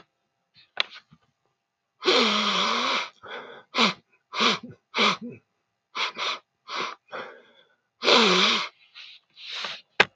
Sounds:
Sniff